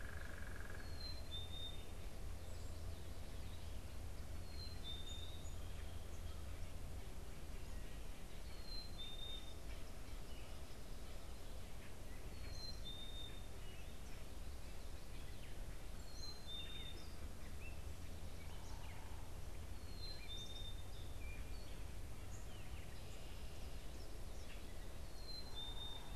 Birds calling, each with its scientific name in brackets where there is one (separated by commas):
unidentified bird, Gray Catbird (Dumetella carolinensis), Black-capped Chickadee (Poecile atricapillus), Song Sparrow (Melospiza melodia)